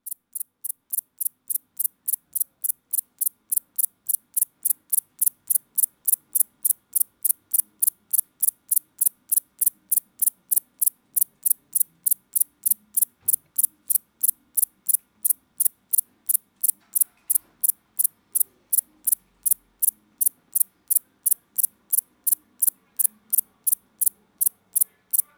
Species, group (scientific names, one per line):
Platycleis intermedia
Orthoptera